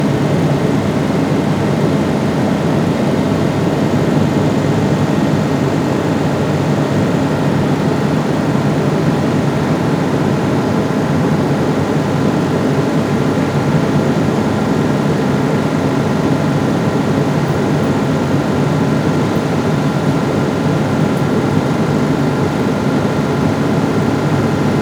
is the sound steady?
yes